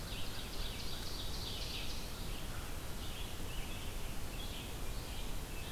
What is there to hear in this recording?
Ovenbird, Red-eyed Vireo